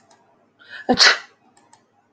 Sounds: Sneeze